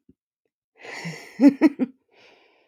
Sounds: Laughter